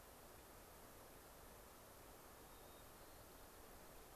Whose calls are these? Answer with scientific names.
Zonotrichia leucophrys